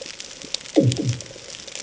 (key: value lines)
label: anthrophony, bomb
recorder: HydroMoth